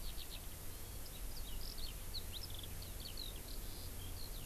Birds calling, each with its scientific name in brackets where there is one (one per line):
Eurasian Skylark (Alauda arvensis)